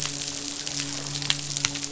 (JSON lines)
{"label": "biophony, midshipman", "recorder": "SoundTrap 500"}